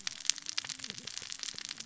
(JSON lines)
{"label": "biophony, cascading saw", "recorder": "SoundTrap 600 or HydroMoth"}